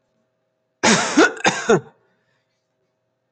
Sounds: Cough